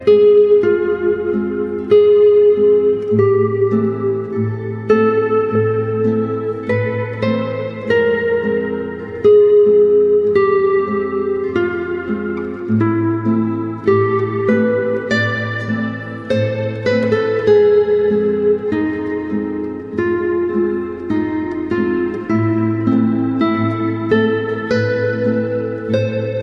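A slow, rhythmic guitar melody plays softly and steadily with a gentle echo. 0.0 - 26.4

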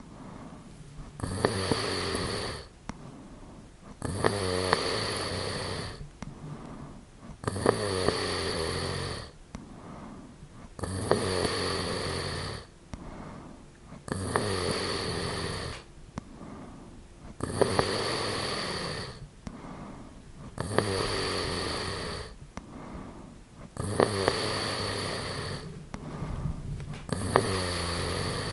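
A person is breathing while asleep. 0.0 - 1.1
Someone is snoring in their sleep. 1.1 - 2.7
A person is breathing while asleep. 2.8 - 4.0
Someone is snoring in their sleep. 4.0 - 6.1
A person is breathing while asleep. 6.1 - 7.4
Someone is snoring in their sleep. 7.4 - 9.3
A person is breathing while asleep. 9.3 - 10.7
Someone is snoring in their sleep. 10.8 - 12.7
A person is breathing while asleep. 12.7 - 14.0
Someone is snoring in their sleep. 14.0 - 16.0
A person is breathing while asleep. 16.0 - 17.3
Someone is snoring in their sleep. 17.3 - 19.3
A person is breathing while asleep. 19.3 - 20.5
Someone is snoring in their sleep. 20.5 - 22.4
A person is breathing while asleep. 22.5 - 23.7
Someone is snoring in their sleep. 23.7 - 25.8
A person is breathing while asleep. 25.8 - 27.0
Someone is snoring in their sleep. 27.1 - 28.5

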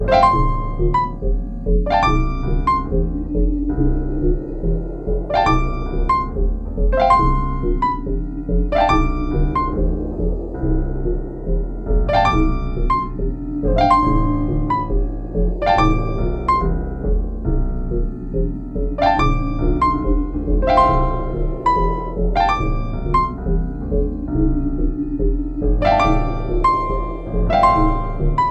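A piano is playing. 0.0 - 3.2
A rhythmic strumming sound. 0.0 - 28.5
A piano is playing. 5.3 - 9.8
A piano is playing. 11.8 - 16.8
A piano is playing. 19.0 - 23.3
A piano is playing. 25.5 - 28.5

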